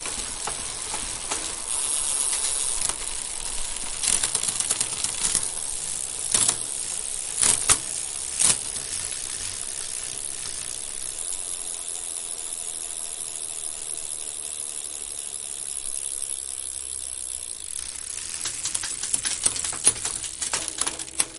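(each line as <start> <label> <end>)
0.0 Continuous mechanical noise of a bicycle chain pedaling with varying intensity. 1.7
1.6 Intense metallic rattling of a bicycle chain while coasting. 3.0
2.9 Continuous mechanical noise of a bicycle chain pedaling with varying intensity. 4.0
3.9 The gears of a moving bicycle are shifting with difficulty. 5.6
5.5 Metallic rattling of a bicycle chain. 8.7
6.3 A quick gear change on a bicycle. 6.6
7.3 A quick gear change on a bicycle. 8.7
8.6 Continuous mechanical noise of a bicycle chain pedaling with varying intensity. 10.9
10.9 Metallic rattling of a bicycle chain as it coasts and slows down. 18.1
18.0 Continuous mechanical noise of a bicycle chain pedaling with varying intensity. 21.4
18.5 The gears of a moving bicycle are shifting with difficulty. 21.3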